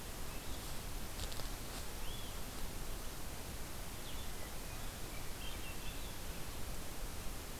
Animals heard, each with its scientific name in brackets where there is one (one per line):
Eastern Wood-Pewee (Contopus virens)
Blue-headed Vireo (Vireo solitarius)
Swainson's Thrush (Catharus ustulatus)